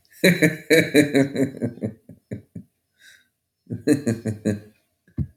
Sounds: Laughter